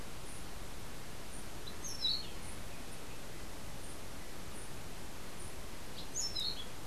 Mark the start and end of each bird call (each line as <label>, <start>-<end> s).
Orange-billed Nightingale-Thrush (Catharus aurantiirostris), 1.6-2.5 s
Orange-billed Nightingale-Thrush (Catharus aurantiirostris), 5.9-6.7 s